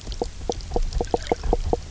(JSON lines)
{"label": "biophony, knock croak", "recorder": "SoundTrap 300"}